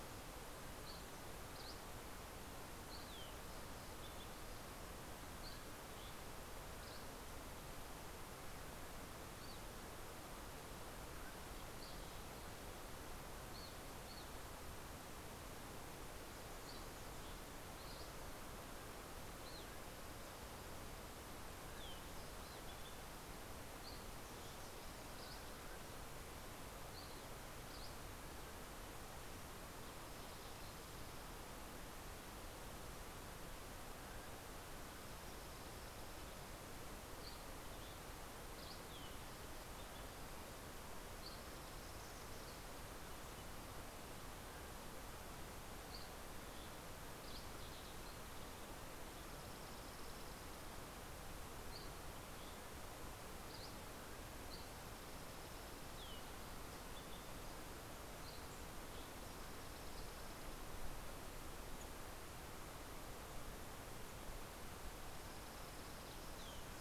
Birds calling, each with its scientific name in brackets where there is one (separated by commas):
Evening Grosbeak (Coccothraustes vespertinus), Dusky Flycatcher (Empidonax oberholseri), Dark-eyed Junco (Junco hyemalis)